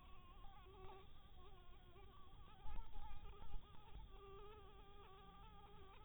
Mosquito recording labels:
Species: Anopheles maculatus; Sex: female; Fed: blood-fed; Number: one; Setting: cup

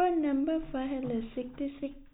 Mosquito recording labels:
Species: no mosquito; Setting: cup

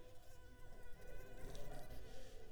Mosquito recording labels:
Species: Anopheles arabiensis; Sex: female; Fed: unfed; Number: one; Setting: cup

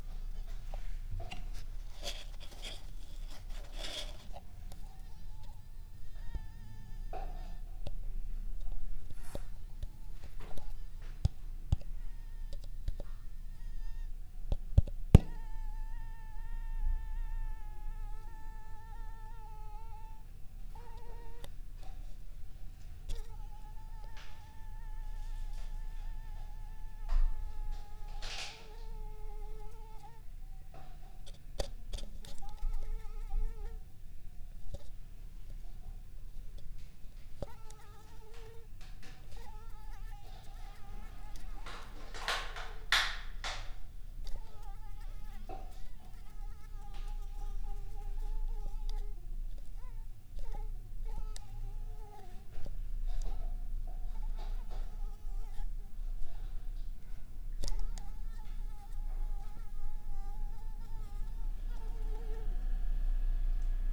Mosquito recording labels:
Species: Anopheles arabiensis; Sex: female; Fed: unfed; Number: one; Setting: cup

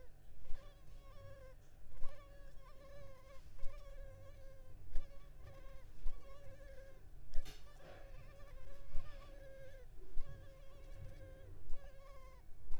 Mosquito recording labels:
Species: Culex pipiens complex; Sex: female; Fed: unfed; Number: one; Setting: cup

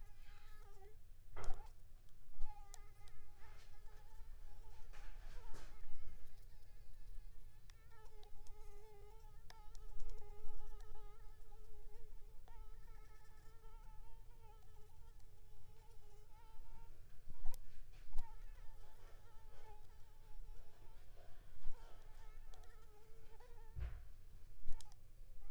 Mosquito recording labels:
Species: Anopheles gambiae s.l.; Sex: female; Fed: unfed; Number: one; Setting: cup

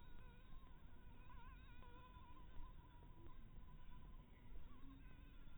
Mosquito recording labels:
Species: Anopheles harrisoni; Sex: female; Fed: blood-fed; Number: one; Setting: cup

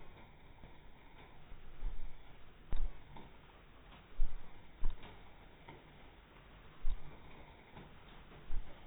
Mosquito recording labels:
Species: mosquito; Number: one; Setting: cup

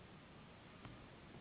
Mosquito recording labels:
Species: Anopheles gambiae s.s.; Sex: female; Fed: unfed; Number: one; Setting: insect culture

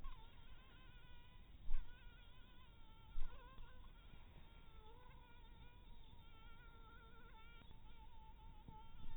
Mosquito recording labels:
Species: mosquito; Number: one; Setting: cup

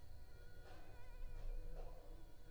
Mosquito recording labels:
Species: Anopheles arabiensis; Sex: female; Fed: unfed; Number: one; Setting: cup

